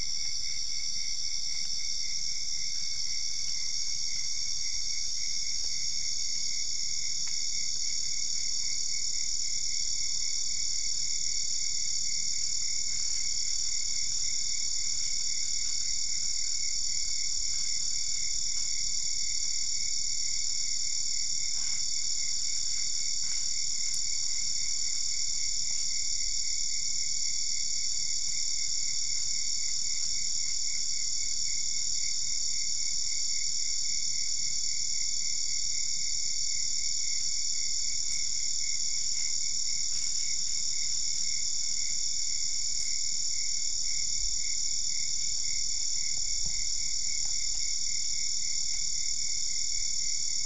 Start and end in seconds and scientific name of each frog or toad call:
none